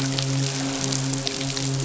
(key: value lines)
label: biophony, midshipman
recorder: SoundTrap 500